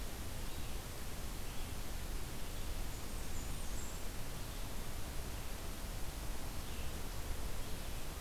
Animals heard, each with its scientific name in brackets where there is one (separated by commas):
Blackburnian Warbler (Setophaga fusca), Red-eyed Vireo (Vireo olivaceus)